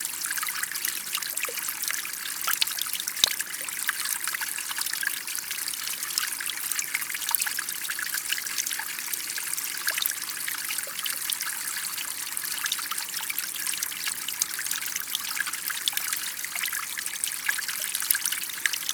What is the liquid that is being heard?
water